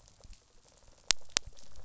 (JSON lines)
{"label": "biophony, rattle response", "recorder": "SoundTrap 500"}